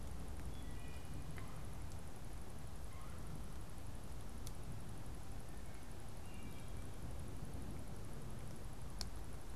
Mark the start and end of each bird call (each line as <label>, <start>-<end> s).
Wood Thrush (Hylocichla mustelina), 0.0-1.2 s
Red-bellied Woodpecker (Melanerpes carolinus), 1.2-3.4 s
Wood Thrush (Hylocichla mustelina), 6.1-7.0 s